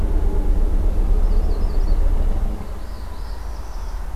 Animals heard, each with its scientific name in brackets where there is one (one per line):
Yellow-rumped Warbler (Setophaga coronata)
Northern Parula (Setophaga americana)